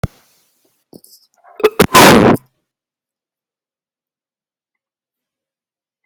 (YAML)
expert_labels:
- quality: poor
  cough_type: unknown
  dyspnea: false
  wheezing: false
  stridor: false
  choking: false
  congestion: false
  nothing: true
  severity: unknown
age: 30
gender: male
respiratory_condition: false
fever_muscle_pain: false
status: symptomatic